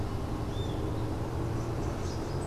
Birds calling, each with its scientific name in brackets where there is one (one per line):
Great Kiskadee (Pitangus sulphuratus)